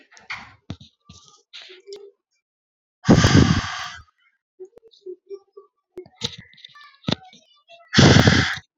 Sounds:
Sigh